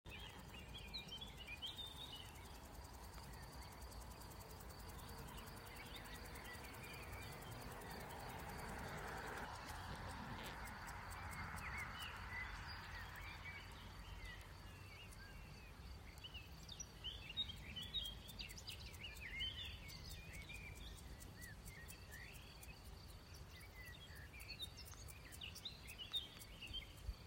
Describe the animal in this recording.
Omocestus viridulus, an orthopteran